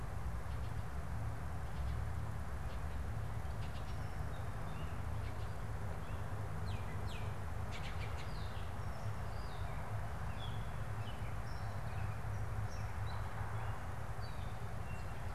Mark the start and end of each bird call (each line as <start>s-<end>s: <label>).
2.6s-9.0s: Baltimore Oriole (Icterus galbula)
9.0s-15.2s: Gray Catbird (Dumetella carolinensis)